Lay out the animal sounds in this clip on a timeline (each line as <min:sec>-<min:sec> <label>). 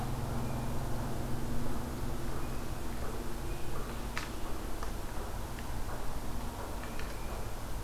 0:02.1-0:03.9 Tufted Titmouse (Baeolophus bicolor)